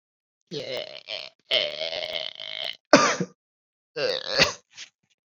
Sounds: Throat clearing